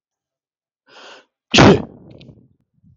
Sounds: Sneeze